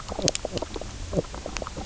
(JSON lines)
{"label": "biophony, knock croak", "recorder": "SoundTrap 300"}